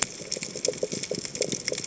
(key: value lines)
label: biophony, chatter
recorder: HydroMoth